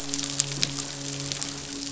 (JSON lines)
{"label": "biophony, midshipman", "recorder": "SoundTrap 500"}